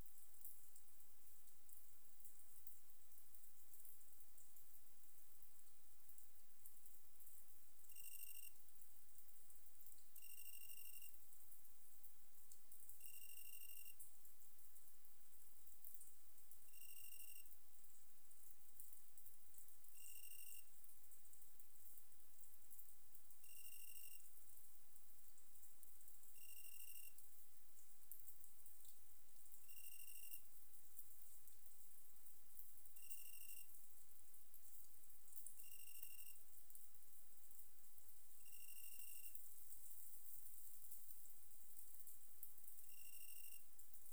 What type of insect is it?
orthopteran